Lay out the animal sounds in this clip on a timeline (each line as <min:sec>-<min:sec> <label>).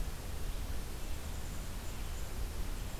0:00.0-0:03.0 Red-eyed Vireo (Vireo olivaceus)
0:00.8-0:02.2 Black-capped Chickadee (Poecile atricapillus)